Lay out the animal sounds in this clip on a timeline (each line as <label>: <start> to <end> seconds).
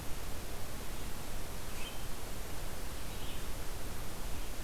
Red-eyed Vireo (Vireo olivaceus): 0.0 to 4.6 seconds